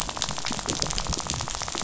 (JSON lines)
{"label": "biophony, rattle", "recorder": "SoundTrap 500"}